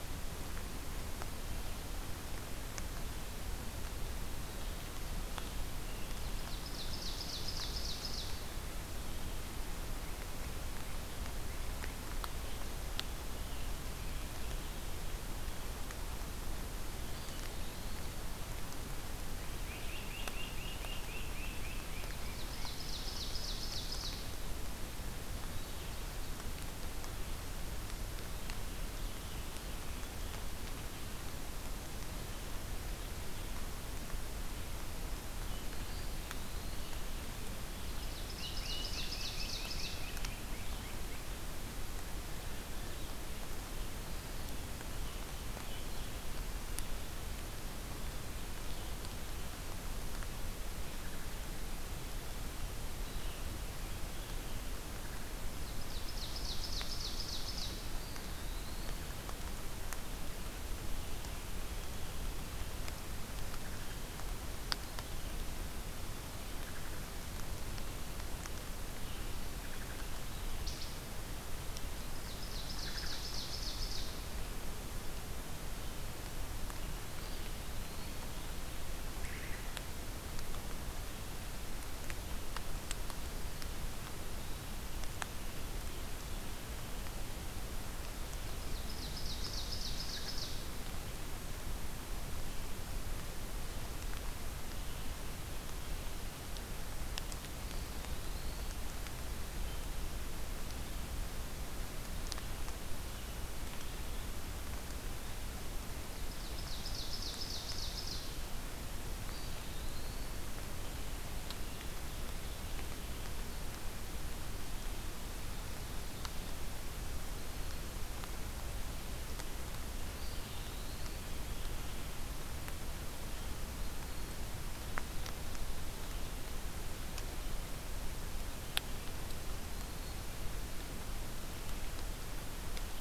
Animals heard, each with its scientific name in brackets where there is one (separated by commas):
Great Crested Flycatcher (Myiarchus crinitus), Eastern Wood-Pewee (Contopus virens), Wood Thrush (Hylocichla mustelina), Ovenbird (Seiurus aurocapilla)